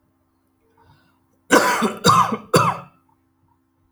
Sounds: Cough